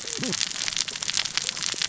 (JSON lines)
{"label": "biophony, cascading saw", "recorder": "SoundTrap 600 or HydroMoth"}